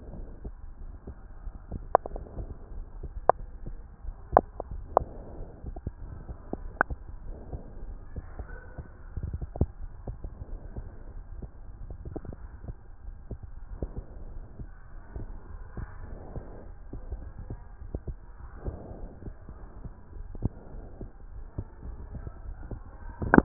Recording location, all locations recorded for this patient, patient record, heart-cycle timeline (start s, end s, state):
aortic valve (AV)
aortic valve (AV)+pulmonary valve (PV)
#Age: nan
#Sex: Female
#Height: nan
#Weight: nan
#Pregnancy status: True
#Murmur: Absent
#Murmur locations: nan
#Most audible location: nan
#Systolic murmur timing: nan
#Systolic murmur shape: nan
#Systolic murmur grading: nan
#Systolic murmur pitch: nan
#Systolic murmur quality: nan
#Diastolic murmur timing: nan
#Diastolic murmur shape: nan
#Diastolic murmur grading: nan
#Diastolic murmur pitch: nan
#Diastolic murmur quality: nan
#Outcome: Normal
#Campaign: 2015 screening campaign
0.00	13.96	unannotated
13.96	14.06	S2
14.06	14.34	diastole
14.34	14.46	S1
14.46	14.60	systole
14.60	14.70	S2
14.70	14.90	diastole
14.90	15.02	S1
15.02	15.14	systole
15.14	15.28	S2
15.28	15.52	diastole
15.52	15.66	S1
15.66	15.76	systole
15.76	15.90	S2
15.90	16.10	diastole
16.10	16.20	S1
16.20	16.32	systole
16.32	16.44	S2
16.44	16.65	diastole
16.65	16.76	S1
16.76	16.92	systole
16.92	17.02	S2
17.02	17.22	diastole
17.22	17.32	S1
17.32	17.48	systole
17.48	17.60	S2
17.60	17.82	diastole
17.82	17.90	S1
17.90	18.04	systole
18.04	18.18	S2
18.18	18.38	diastole
18.38	18.50	S1
18.50	18.66	systole
18.66	18.78	S2
18.78	19.00	diastole
19.00	19.10	S1
19.10	19.26	systole
19.26	19.34	S2
19.34	19.58	diastole
19.58	19.68	S1
19.68	19.84	systole
19.84	19.92	S2
19.92	20.16	diastole
20.16	20.26	S1
20.26	20.36	systole
20.36	20.50	S2
20.50	20.74	diastole
20.74	20.86	S1
20.86	21.00	systole
21.00	21.08	S2
21.08	21.34	diastole
21.34	21.46	S1
21.46	21.54	systole
21.54	21.66	S2
21.66	21.86	diastole
21.86	22.00	S1
22.00	22.12	systole
22.12	22.24	S2
22.24	22.46	diastole
22.46	22.58	S1
22.58	22.70	systole
22.70	22.80	S2
22.80	23.06	diastole
23.06	23.44	unannotated